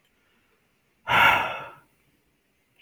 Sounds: Sigh